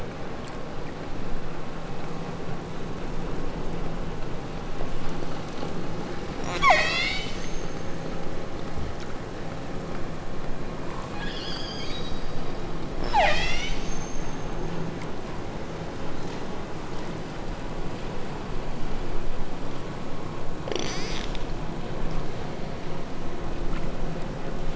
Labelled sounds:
6.5	8.3	killer whale, southern Alaska resident, 0.27 to 8.0 kHz
11.0	12.5	killer whale, southern Alaska resident, 0.57 to 8.0 kHz
13.0	15.1	killer whale, southern Alaska resident, 0.34 to 8.0 kHz
20.7	21.3	killer whale, southern Alaska resident, 0.61 to 8.0 kHz

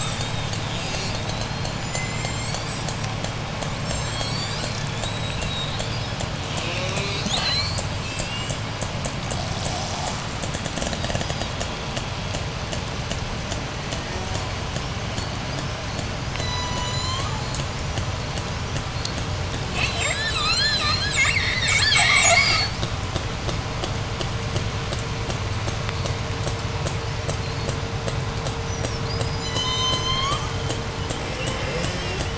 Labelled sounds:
0.5	3.0	killer whale, J pod, 1.7 to 8.0 kHz
3.7	6.4	killer whale, J pod, 2.2 to 8.0 kHz
6.4	7.3	killer whale, J pod, call S04, 0.18 to 6.4 kHz
7.2	8.7	killer whale, J pod, 0.43 to 8.0 kHz
9.2	11.9	killer whale, J pod, 0.23 to 8.0 kHz
16.2	17.4	killer whale, J pod, call S01, 0.47 to 8.0 kHz
19.5	22.9	killer whale, J pod, 0.49 to 8.0 kHz
24.3	29.4	killer whale, 3.7 to 8.0 kHz
29.3	30.8	killer whale, J pod, 0.93 to 8.0 kHz
31.0	32.3	killer whale, J pod, call S04, 0.26 to 6.2 kHz

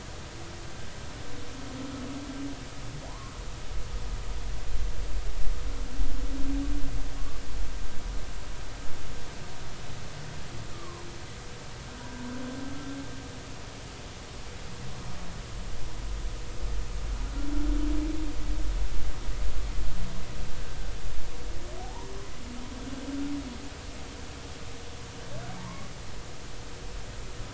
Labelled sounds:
3.1	3.3	humpback whale, 0.80 to 1.3 kHz
10.7	11.1	humpback whale, 0.90 to 1.4 kHz
21.8	22.1	humpback whale, 0.80 to 1.1 kHz
25.6	25.9	humpback whale, 0.80 to 1.2 kHz

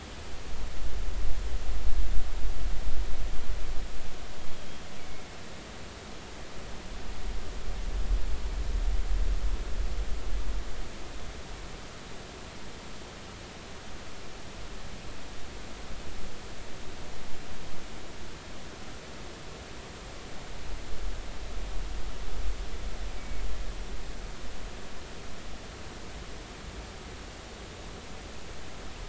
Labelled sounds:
23.2	23.4	killer whale, northern resident, G clan, 2.1 to 2.3 kHz

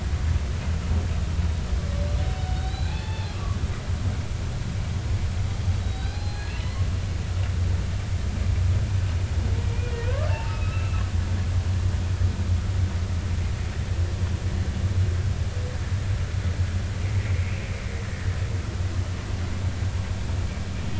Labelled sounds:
2.2	3.6	humpback whale, 0.80 to 4.1 kHz
5.8	6.6	humpback whale, 0.80 to 5.0 kHz
10.3	11.0	humpback whale, 0.83 to 2.8 kHz
17.3	17.5	humpback whale, 2.1 to 2.3 kHz

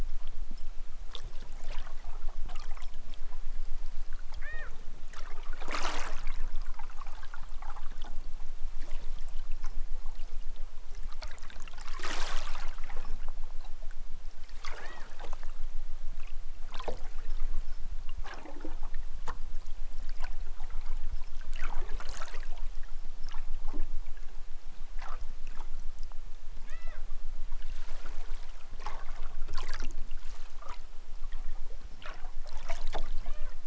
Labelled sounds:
4.3	4.7	killer whale, southern Alaska resident, 0.23 to 4.8 kHz
14.6	15.1	killer whale, southern Alaska resident, 1.3 to 4.4 kHz
26.6	27.0	killer whale, southern Alaska resident, 0.28 to 5.7 kHz
33.1	33.5	killer whale, southern Alaska resident, 0.32 to 4.5 kHz

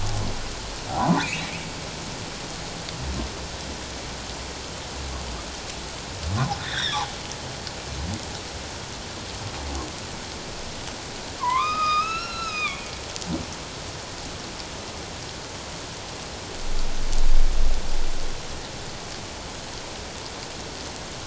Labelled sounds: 0.9	1.6	humpback whale, 0.78 to 2.8 kHz
6.3	7.0	humpback whale, 0.78 to 4.0 kHz
11.4	12.8	humpback whale, 0.91 to 6.9 kHz

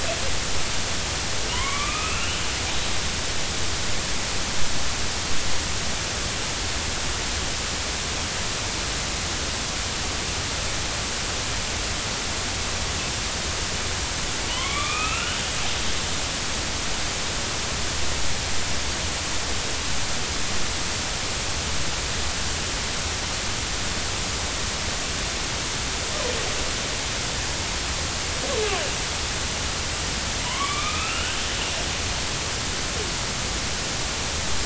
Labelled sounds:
1.5	2.5	killer whale, northern resident, A clan, AB subclan, 0.93 to 3.2 kHz
14.5	15.4	killer whale, northern resident, A clan, AB subclan, 0.93 to 3.4 kHz
30.5	31.4	killer whale, northern resident, A clan, AB subclan, 0.90 to 3.0 kHz

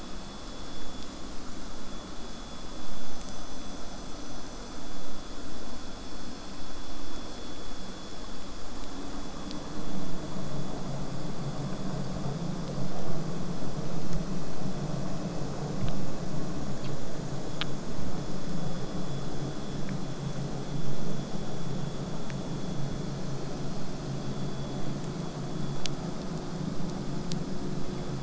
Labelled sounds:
22.7	27.7	vessel noise, 0 to 8.0 kHz

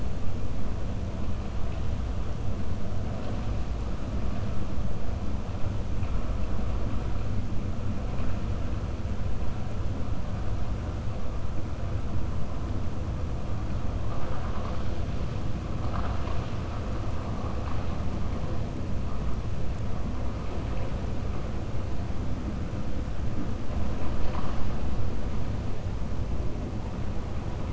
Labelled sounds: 23.9	24.6	vessel noise, 0.61 to 5.7 kHz

